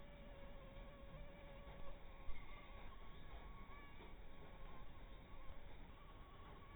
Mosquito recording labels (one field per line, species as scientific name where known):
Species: mosquito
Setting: cup